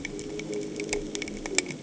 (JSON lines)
{"label": "anthrophony, boat engine", "recorder": "HydroMoth"}